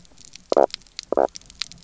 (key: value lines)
label: biophony, knock croak
recorder: SoundTrap 300